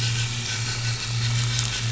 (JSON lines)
{"label": "anthrophony, boat engine", "recorder": "SoundTrap 500"}